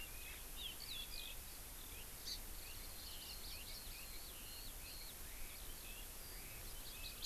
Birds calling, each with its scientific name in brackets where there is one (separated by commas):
Hawaii Amakihi (Chlorodrepanis virens), Eurasian Skylark (Alauda arvensis), Red-billed Leiothrix (Leiothrix lutea)